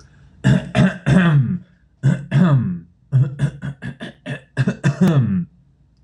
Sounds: Throat clearing